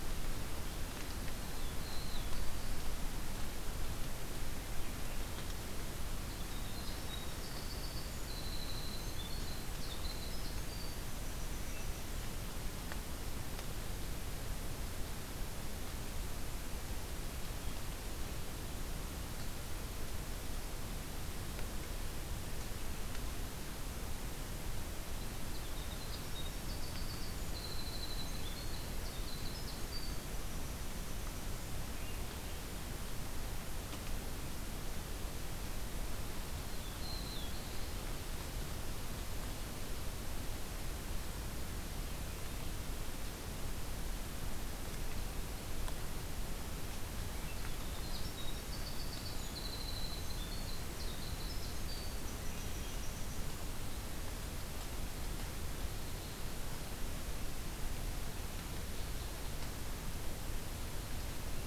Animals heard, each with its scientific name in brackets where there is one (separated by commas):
Winter Wren (Troglodytes hiemalis), Black-throated Blue Warbler (Setophaga caerulescens)